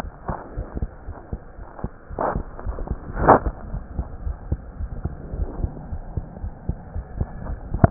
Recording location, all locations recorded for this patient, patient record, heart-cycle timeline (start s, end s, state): aortic valve (AV)
aortic valve (AV)+pulmonary valve (PV)+tricuspid valve (TV)+mitral valve (MV)
#Age: Child
#Sex: Male
#Height: 94.0 cm
#Weight: 13.6 kg
#Pregnancy status: False
#Murmur: Absent
#Murmur locations: nan
#Most audible location: nan
#Systolic murmur timing: nan
#Systolic murmur shape: nan
#Systolic murmur grading: nan
#Systolic murmur pitch: nan
#Systolic murmur quality: nan
#Diastolic murmur timing: nan
#Diastolic murmur shape: nan
#Diastolic murmur grading: nan
#Diastolic murmur pitch: nan
#Diastolic murmur quality: nan
#Outcome: Abnormal
#Campaign: 2015 screening campaign
0.00	0.54	unannotated
0.54	0.66	S1
0.66	0.76	systole
0.76	0.90	S2
0.90	1.05	diastole
1.05	1.16	S1
1.16	1.30	systole
1.30	1.40	S2
1.40	1.56	diastole
1.56	1.66	S1
1.66	1.80	systole
1.80	1.90	S2
1.90	2.09	diastole
2.09	2.18	S1
2.18	2.34	systole
2.34	2.48	S2
2.48	2.66	diastole
2.66	2.78	S1
2.78	2.88	systole
2.88	3.00	S2
3.00	3.15	diastole
3.15	3.28	S1
3.28	3.44	systole
3.44	3.54	S2
3.54	3.70	diastole
3.70	3.82	S1
3.82	3.96	systole
3.96	4.08	S2
4.08	4.24	diastole
4.24	4.38	S1
4.38	4.48	systole
4.48	4.60	S2
4.60	4.78	diastole
4.78	4.90	S1
4.90	5.02	systole
5.02	5.14	S2
5.14	5.32	diastole
5.32	5.50	S1
5.50	5.58	systole
5.58	5.72	S2
5.72	5.90	diastole
5.90	6.04	S1
6.04	6.14	systole
6.14	6.26	S2
6.26	6.42	diastole
6.42	6.56	S1
6.56	6.68	systole
6.68	6.78	S2
6.78	6.94	diastole
6.94	7.06	S1
7.06	7.16	systole
7.16	7.28	S2
7.28	7.48	diastole
7.48	7.62	S1
7.62	7.72	systole
7.72	7.81	S2
7.81	7.90	unannotated